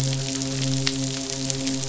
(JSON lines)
{"label": "biophony, midshipman", "recorder": "SoundTrap 500"}